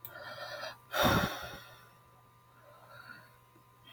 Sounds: Sigh